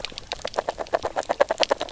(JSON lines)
{"label": "biophony, knock croak", "recorder": "SoundTrap 300"}